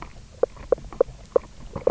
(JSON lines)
{"label": "biophony, knock croak", "recorder": "SoundTrap 300"}